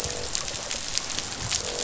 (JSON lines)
{"label": "biophony, croak", "recorder": "SoundTrap 500"}